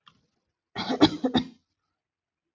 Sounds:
Cough